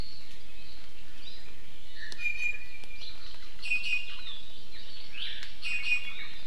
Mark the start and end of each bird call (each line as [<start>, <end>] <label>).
[1.80, 3.30] Iiwi (Drepanis coccinea)
[3.60, 4.30] Iiwi (Drepanis coccinea)
[4.30, 5.60] Hawaii Amakihi (Chlorodrepanis virens)
[5.60, 6.40] Iiwi (Drepanis coccinea)